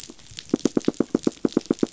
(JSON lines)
{"label": "biophony, knock", "recorder": "SoundTrap 500"}